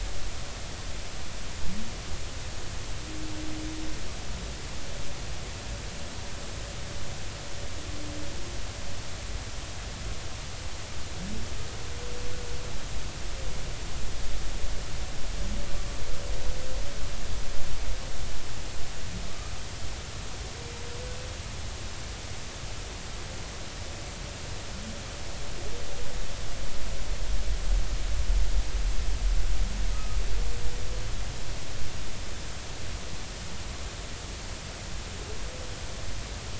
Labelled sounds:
19.3	19.5	humpback whale, 1.1 to 1.3 kHz
29.9	30.2	humpback whale, 1.2 to 1.3 kHz

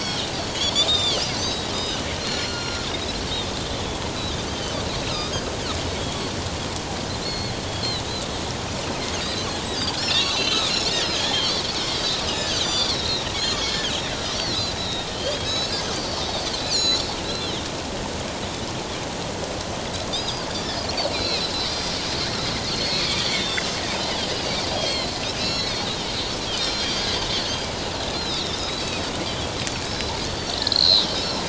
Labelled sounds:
0.0	2.9	Pacific white-sided dolphin, 1.3 to 7.2 kHz
4.2	6.3	Pacific white-sided dolphin, 2.9 to 4.1 kHz
7.2	7.6	Pacific white-sided dolphin, 2.1 to 4.4 kHz
9.7	13.9	Pacific white-sided dolphin, 1.6 to 7.4 kHz
14.2	17.6	Pacific white-sided dolphin, 2.9 to 7.9 kHz
20.1	21.5	Pacific white-sided dolphin, 3.3 to 5.1 kHz
22.6	23.8	Pacific white-sided dolphin, 2.0 to 6.3 kHz
24.3	26.1	Pacific white-sided dolphin, 2.6 to 5.6 kHz
26.6	27.3	Pacific white-sided dolphin, 3.1 to 6.6 kHz
28.1	29.5	Pacific white-sided dolphin, 3.3 to 5.3 kHz
29.8	31.1	Pacific white-sided dolphin, 3.6 to 5.4 kHz

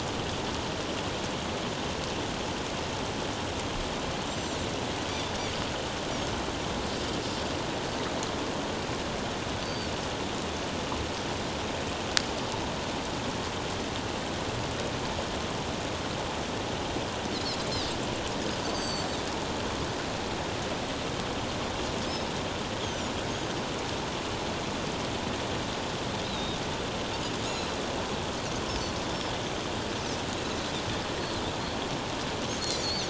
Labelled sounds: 4.3	5.3	Pacific white-sided dolphin, 3.4 to 7.6 kHz
9.6	9.9	Pacific white-sided dolphin, 4.3 to 4.7 kHz
18.7	19.2	Pacific white-sided dolphin, 4.4 to 7.9 kHz
22.8	23.1	Pacific white-sided dolphin, 5.5 to 6.7 kHz
26.2	26.6	Pacific white-sided dolphin, 3.6 to 4.2 kHz
27.4	27.7	Pacific white-sided dolphin, 6.5 to 6.9 kHz
32.7	33.0	Pacific white-sided dolphin, 4.2 to 4.8 kHz

